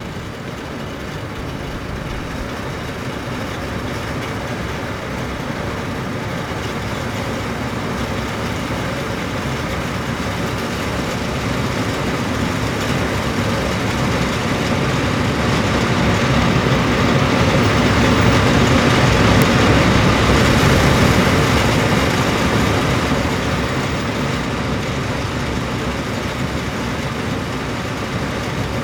Are people talking?
no